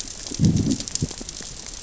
{"label": "biophony, growl", "recorder": "SoundTrap 600 or HydroMoth"}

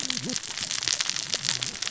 {"label": "biophony, cascading saw", "recorder": "SoundTrap 600 or HydroMoth"}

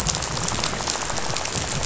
{"label": "biophony, rattle", "recorder": "SoundTrap 500"}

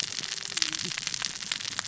{"label": "biophony, cascading saw", "recorder": "SoundTrap 600 or HydroMoth"}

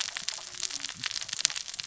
{"label": "biophony, cascading saw", "recorder": "SoundTrap 600 or HydroMoth"}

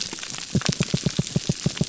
{"label": "biophony, pulse", "recorder": "SoundTrap 300"}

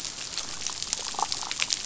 {"label": "biophony, damselfish", "recorder": "SoundTrap 500"}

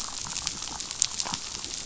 {"label": "biophony", "recorder": "SoundTrap 500"}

